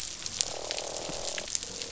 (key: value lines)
label: biophony, croak
recorder: SoundTrap 500